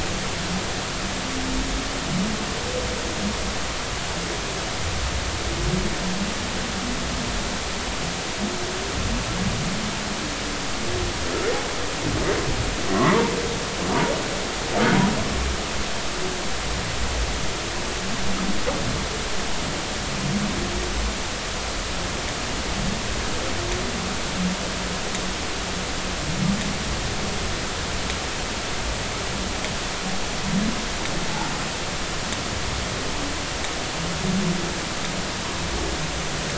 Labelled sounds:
12.9	13.3	humpback whale, 0.86 to 2.0 kHz

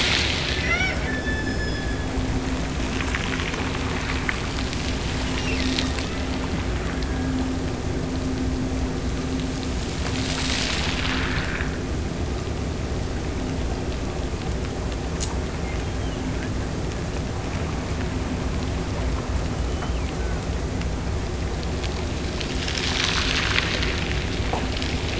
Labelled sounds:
0.5	2.2	killer whale, Bigg's (transient), Gulf of Alaska transient, 0.50 to 5.7 kHz
5.2	6.1	killer whale, Bigg's (transient), Gulf of Alaska transient, 1.7 to 3.1 kHz

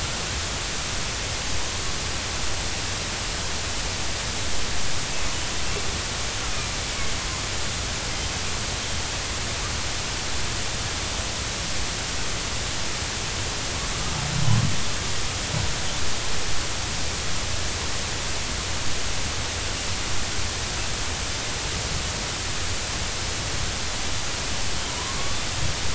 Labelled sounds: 24.9	25.4	killer whale, northern resident, 0.93 to 1.2 kHz

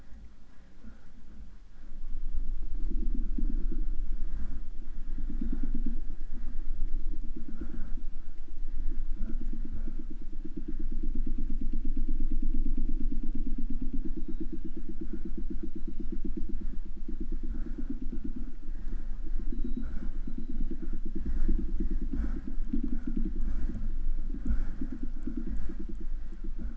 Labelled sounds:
5.1	6.1	killer whale, southern resident, 2.3 to 3.8 kHz
14.0	14.8	killer whale, southern resident, J pod, call S01, 2.5 to 4.6 kHz
15.4	16.1	killer whale, southern resident, J pod, call S01, 2.4 to 5.3 kHz
19.4	20.9	killer whale, southern resident, J pod, call S01, 2.3 to 4.2 kHz

